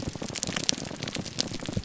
{"label": "biophony", "recorder": "SoundTrap 300"}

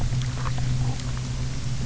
{"label": "anthrophony, boat engine", "recorder": "SoundTrap 300"}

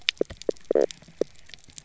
{"label": "biophony, stridulation", "recorder": "SoundTrap 300"}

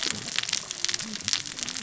{"label": "biophony, cascading saw", "recorder": "SoundTrap 600 or HydroMoth"}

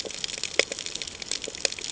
{"label": "ambient", "recorder": "HydroMoth"}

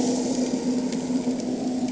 {"label": "anthrophony, boat engine", "recorder": "HydroMoth"}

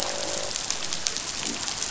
{"label": "biophony, croak", "recorder": "SoundTrap 500"}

